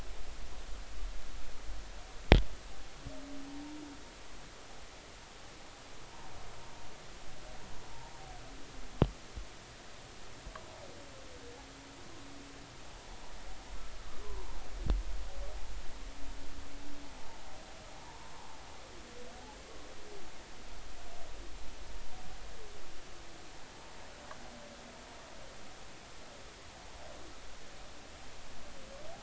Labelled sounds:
14.2	14.5	humpback whale, 0.86 to 1.1 kHz
18.0	18.5	humpback whale, 0.83 to 1.1 kHz

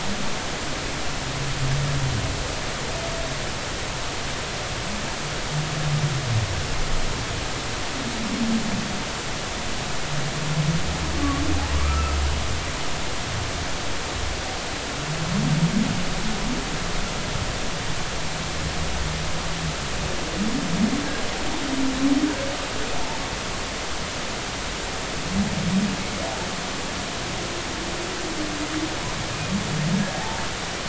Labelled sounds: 11.8	12.2	humpback whale, 1.1 to 1.4 kHz
29.9	30.5	humpback whale, 0.80 to 1.7 kHz

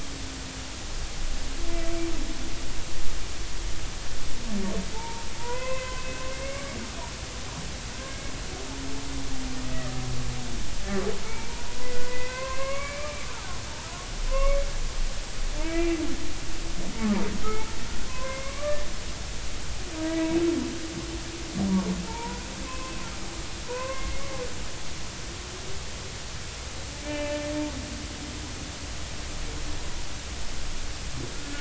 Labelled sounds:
4.9	7.0	humpback whale, 0.83 to 2.7 kHz
8.1	8.3	humpback whale, 2.1 to 2.3 kHz
11.2	13.2	humpback whale, 0.96 to 2.6 kHz
13.5	14.6	humpback whale, 0.99 to 2.4 kHz
15.6	16.0	humpback whale, 1.2 to 2.4 kHz
17.4	18.8	humpback whale, 0.96 to 2.4 kHz
20.1	20.4	humpback whale, 2.2 to 2.3 kHz
22.1	22.9	humpback whale, 0.83 to 2.6 kHz
23.7	24.3	humpback whale, 0.90 to 2.7 kHz
27.0	27.4	humpback whale, 0.83 to 3.0 kHz

